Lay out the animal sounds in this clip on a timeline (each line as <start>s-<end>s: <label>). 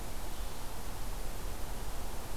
0.3s-2.4s: Blue-headed Vireo (Vireo solitarius)